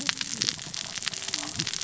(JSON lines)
{"label": "biophony, cascading saw", "recorder": "SoundTrap 600 or HydroMoth"}